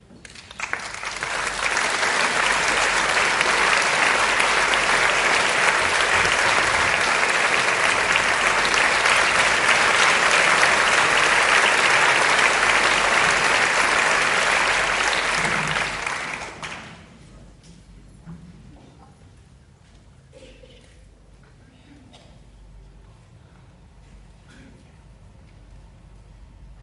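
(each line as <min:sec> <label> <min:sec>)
0:00.1 An energetic round of applause by the audience. 0:17.1
0:17.2 Background voices of people while a woman coughs and clears her throat. 0:26.8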